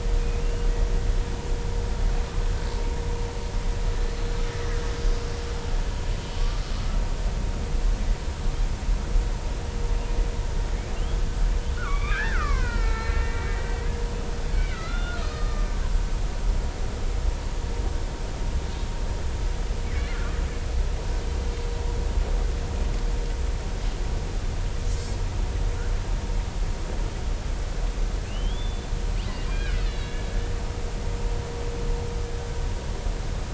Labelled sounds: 6.4	6.6	killer whale, Bigg's (transient), 1.1 to 1.2 kHz
11.0	11.2	killer whale, Bigg's (transient), 2.7 to 3.4 kHz
11.8	13.9	killer whale, Bigg's (transient), 0.90 to 4.2 kHz
14.5	15.7	killer whale, Bigg's (transient), 1.2 to 4.3 kHz
24.9	25.2	killer whale, Bigg's (transient), 6.6 to 7.1 kHz
28.3	30.3	killer whale, Bigg's (transient), 1.4 to 4.2 kHz

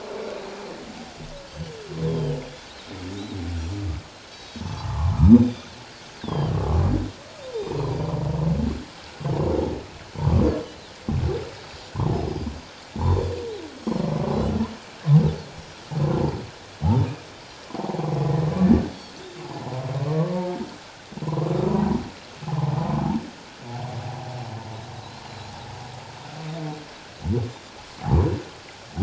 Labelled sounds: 2.0	2.4	Pacific white-sided dolphin, 2.8 to 3.7 kHz
4.2	4.8	Pacific white-sided dolphin, 3.8 to 6.5 kHz
4.6	5.2	humpback whale, 0.78 to 1.4 kHz
5.2	5.7	Pacific white-sided dolphin, 3.3 to 6.3 kHz
6.2	6.5	Pacific white-sided dolphin, 2.9 to 5.2 kHz
7.4	7.7	Pacific white-sided dolphin, 7.2 to 7.5 kHz
10.7	10.9	Pacific white-sided dolphin, 3.3 to 4.3 kHz
11.7	13.3	Pacific white-sided dolphin, 3.4 to 7.2 kHz
16.8	18.1	humpback whale, 0.78 to 1.2 kHz
20.1	20.6	humpback whale, 0.84 to 1.2 kHz
21.2	21.5	humpback whale, 0.94 to 1.2 kHz
25.3	25.6	Pacific white-sided dolphin, 3.8 to 4.3 kHz

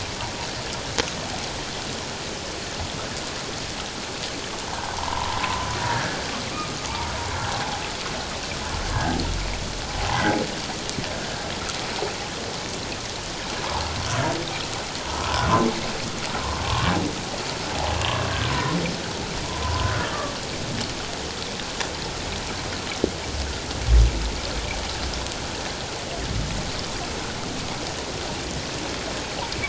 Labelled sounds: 4.7	6.2	humpback whale, 0.78 to 1.8 kHz
6.9	7.8	humpback whale, 0.78 to 1.2 kHz
8.9	9.2	humpback whale, 1.5 to 1.7 kHz
10.0	10.3	humpback whale, 0.78 to 2.1 kHz
13.6	13.8	humpback whale, 0.81 to 1.2 kHz
15.2	15.5	humpback whale, 0.84 to 1.2 kHz
16.6	16.9	humpback whale, 1.0 to 1.2 kHz
18.0	18.3	humpback whale, 1.6 to 1.7 kHz
19.4	19.9	humpback whale, 0.91 to 1.1 kHz

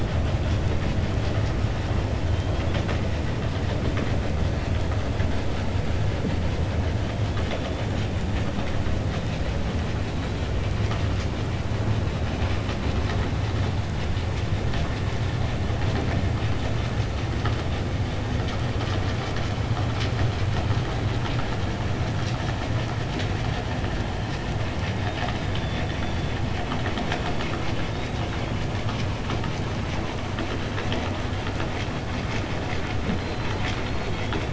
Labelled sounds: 25.0	26.0	killer whale, 0.74 to 5.0 kHz

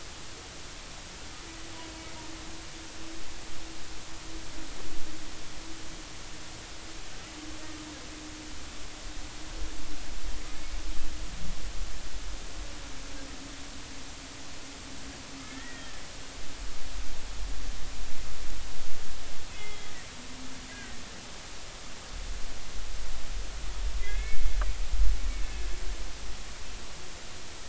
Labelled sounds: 15.4	16.0	humpback whale, 1.7 to 2.0 kHz
19.5	19.9	humpback whale, 1.9 to 2.2 kHz
24.0	24.6	humpback whale, 1.6 to 2.7 kHz

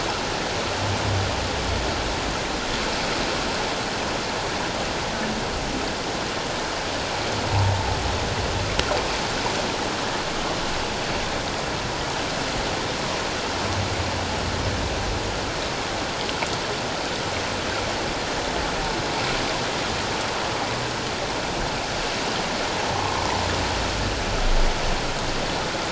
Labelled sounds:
7.5	7.8	humpback whale, 0.78 to 1.0 kHz
22.9	23.3	humpback whale, 0.88 to 1.2 kHz

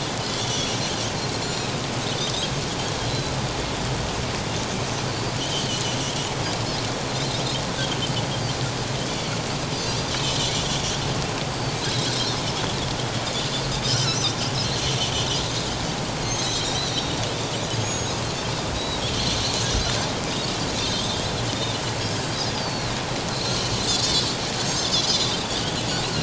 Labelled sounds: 0.2	0.8	Pacific white-sided dolphin, 2.9 to 6.1 kHz
1.4	1.7	Pacific white-sided dolphin, 4.1 to 4.3 kHz
5.4	5.7	Pacific white-sided dolphin, 2.8 to 3.3 kHz
9.0	9.3	Pacific white-sided dolphin, 3.3 to 3.5 kHz
9.9	10.1	Pacific white-sided dolphin, 5.7 to 6.0 kHz
11.5	12.4	Pacific white-sided dolphin, 3.7 to 4.7 kHz
14.6	14.9	Pacific white-sided dolphin, 4.0 to 4.4 kHz
16.4	17.2	Pacific white-sided dolphin, 3.6 to 5.8 kHz
17.6	18.2	Pacific white-sided dolphin, 4.8 to 6.8 kHz
18.7	19.0	Pacific white-sided dolphin, 3.7 to 4.0 kHz
20.2	20.5	Pacific white-sided dolphin, 4.8 to 5.0 kHz
20.8	21.2	Pacific white-sided dolphin, 3.0 to 3.8 kHz
22.6	25.3	Pacific white-sided dolphin, 3.3 to 6.2 kHz

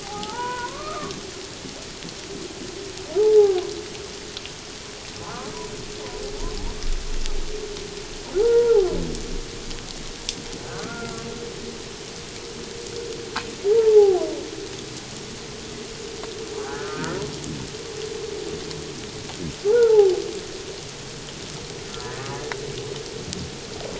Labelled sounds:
0.0	1.1	humpback whale, 0.78 to 1.5 kHz
3.2	3.6	humpback whale, 0.78 to 0.94 kHz
5.2	5.5	humpback whale, 0.78 to 1.1 kHz
8.4	9.0	humpback whale, 0.78 to 1.5 kHz
10.6	11.2	humpback whale, 1.1 to 1.6 kHz
13.7	14.2	humpback whale, 0.78 to 0.97 kHz
16.6	17.2	humpback whale, 1.2 to 1.8 kHz
19.7	20.1	humpback whale, 0.78 to 1.5 kHz

